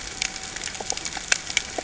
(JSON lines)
{"label": "ambient", "recorder": "HydroMoth"}